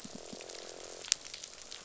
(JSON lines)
{"label": "biophony, croak", "recorder": "SoundTrap 500"}
{"label": "biophony", "recorder": "SoundTrap 500"}